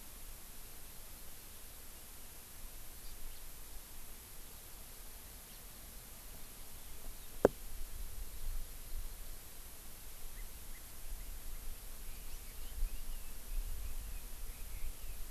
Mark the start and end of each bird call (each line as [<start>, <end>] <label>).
[3.30, 3.40] House Finch (Haemorhous mexicanus)
[5.50, 5.60] House Finch (Haemorhous mexicanus)
[10.30, 15.30] Red-billed Leiothrix (Leiothrix lutea)
[12.30, 12.40] House Finch (Haemorhous mexicanus)